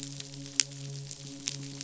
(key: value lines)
label: biophony, midshipman
recorder: SoundTrap 500